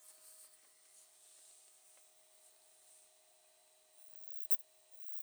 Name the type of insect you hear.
orthopteran